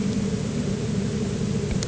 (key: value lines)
label: anthrophony, boat engine
recorder: HydroMoth